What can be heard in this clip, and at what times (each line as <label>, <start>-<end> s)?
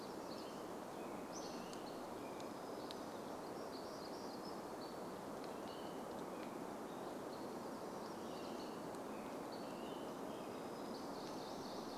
Hammond's Flycatcher song, 0-4 s
American Robin song, 0-12 s
warbler song, 2-8 s
Hammond's Flycatcher call, 4-12 s
warbler song, 10-12 s